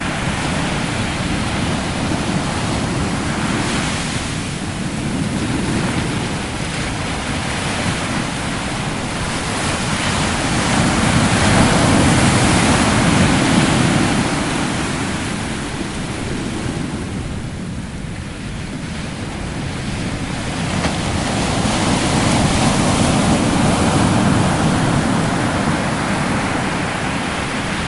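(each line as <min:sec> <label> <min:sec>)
0:00.0 Steady sound of waves on the beach with waves approaching closer, causing the sound to increase gradually. 0:27.9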